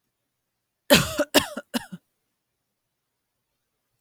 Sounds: Cough